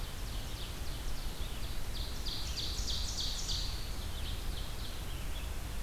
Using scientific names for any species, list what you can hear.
Seiurus aurocapilla, Vireo olivaceus